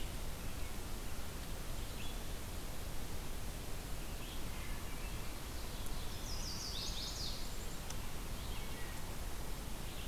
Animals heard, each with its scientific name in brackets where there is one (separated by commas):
Red-eyed Vireo (Vireo olivaceus), Wood Thrush (Hylocichla mustelina), Chestnut-sided Warbler (Setophaga pensylvanica)